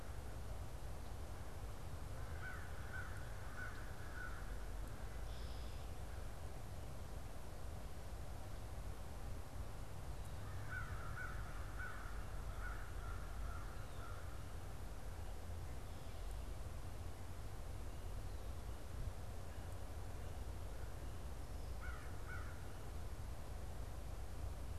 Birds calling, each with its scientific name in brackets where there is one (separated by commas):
American Crow (Corvus brachyrhynchos), Red-winged Blackbird (Agelaius phoeniceus)